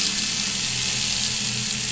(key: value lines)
label: anthrophony, boat engine
recorder: SoundTrap 500